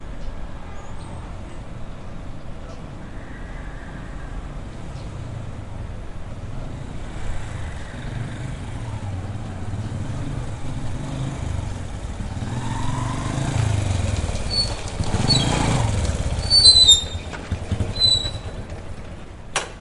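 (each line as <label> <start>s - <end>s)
A vehicle approaches on a busy street. 0.0s - 19.8s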